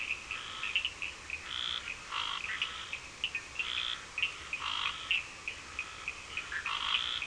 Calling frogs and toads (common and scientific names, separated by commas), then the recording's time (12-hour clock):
Scinax perereca, Cochran's lime tree frog (Sphaenorhynchus surdus)
10:30pm